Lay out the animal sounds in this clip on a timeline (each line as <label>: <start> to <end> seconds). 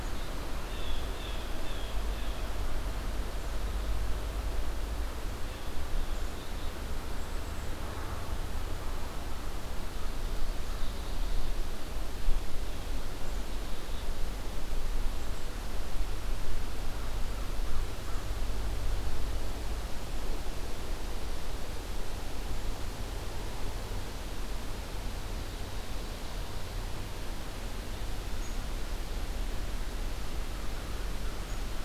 Blue Jay (Cyanocitta cristata): 0.6 to 2.6 seconds